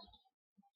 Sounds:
Sneeze